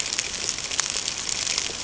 {"label": "ambient", "recorder": "HydroMoth"}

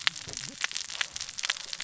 {"label": "biophony, cascading saw", "recorder": "SoundTrap 600 or HydroMoth"}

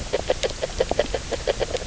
{"label": "biophony, grazing", "recorder": "SoundTrap 300"}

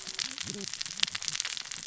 {"label": "biophony, cascading saw", "recorder": "SoundTrap 600 or HydroMoth"}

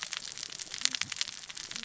{"label": "biophony, cascading saw", "recorder": "SoundTrap 600 or HydroMoth"}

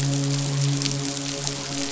{"label": "biophony, midshipman", "recorder": "SoundTrap 500"}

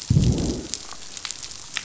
{"label": "biophony, growl", "recorder": "SoundTrap 500"}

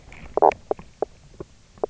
{"label": "biophony, knock croak", "recorder": "SoundTrap 300"}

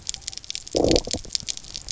{"label": "biophony, low growl", "recorder": "SoundTrap 300"}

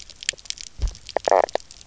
{"label": "biophony, knock croak", "recorder": "SoundTrap 300"}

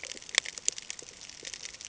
{"label": "ambient", "recorder": "HydroMoth"}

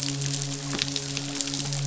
{"label": "biophony, midshipman", "recorder": "SoundTrap 500"}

